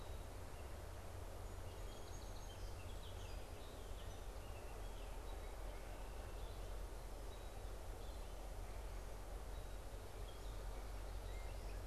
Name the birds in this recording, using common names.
Gray Catbird, Song Sparrow, Red-winged Blackbird